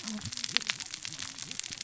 {"label": "biophony, cascading saw", "recorder": "SoundTrap 600 or HydroMoth"}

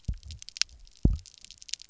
{"label": "biophony, double pulse", "recorder": "SoundTrap 300"}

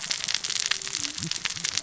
{"label": "biophony, cascading saw", "recorder": "SoundTrap 600 or HydroMoth"}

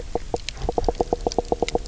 {"label": "biophony, knock croak", "recorder": "SoundTrap 300"}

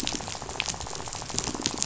{"label": "biophony, rattle", "recorder": "SoundTrap 500"}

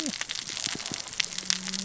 {"label": "biophony, cascading saw", "recorder": "SoundTrap 600 or HydroMoth"}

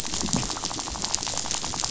{"label": "biophony, rattle", "recorder": "SoundTrap 500"}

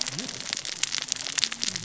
{"label": "biophony, cascading saw", "recorder": "SoundTrap 600 or HydroMoth"}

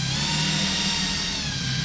{"label": "anthrophony, boat engine", "recorder": "SoundTrap 500"}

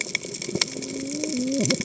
{"label": "biophony, cascading saw", "recorder": "HydroMoth"}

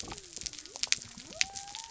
{"label": "biophony", "recorder": "SoundTrap 300"}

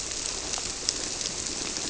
{"label": "biophony", "recorder": "SoundTrap 300"}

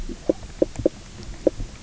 {"label": "biophony, knock croak", "recorder": "SoundTrap 300"}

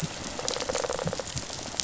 {"label": "biophony, rattle response", "recorder": "SoundTrap 500"}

